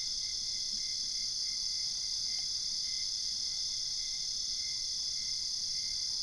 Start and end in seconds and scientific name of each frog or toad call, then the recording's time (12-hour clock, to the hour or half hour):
none
2:30am